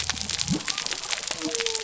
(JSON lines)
{"label": "biophony", "recorder": "SoundTrap 300"}